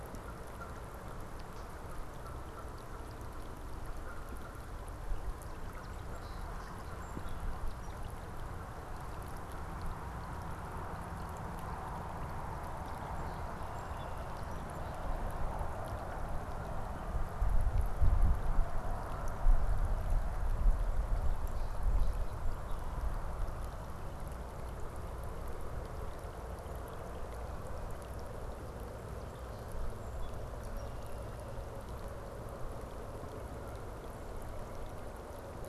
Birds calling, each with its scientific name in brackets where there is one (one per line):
Song Sparrow (Melospiza melodia)
Canada Goose (Branta canadensis)